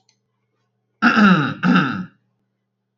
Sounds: Throat clearing